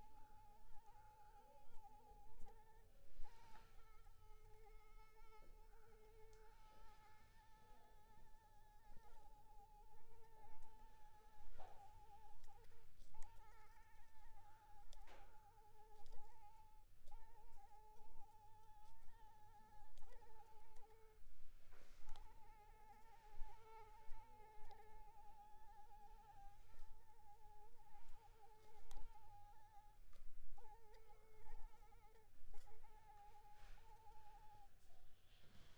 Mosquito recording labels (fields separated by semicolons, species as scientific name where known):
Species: Anopheles arabiensis; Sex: female; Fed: unfed; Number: one; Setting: cup